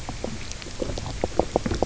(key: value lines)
label: biophony, knock croak
recorder: SoundTrap 300